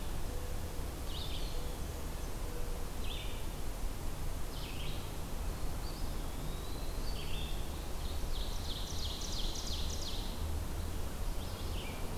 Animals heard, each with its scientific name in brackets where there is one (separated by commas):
Red-eyed Vireo (Vireo olivaceus), Eastern Wood-Pewee (Contopus virens), Ovenbird (Seiurus aurocapilla)